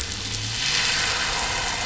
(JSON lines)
{"label": "anthrophony, boat engine", "recorder": "SoundTrap 500"}